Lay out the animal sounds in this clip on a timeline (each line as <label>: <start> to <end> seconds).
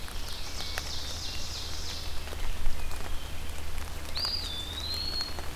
Ovenbird (Seiurus aurocapilla): 0.0 to 2.2 seconds
Eastern Wood-Pewee (Contopus virens): 4.0 to 5.6 seconds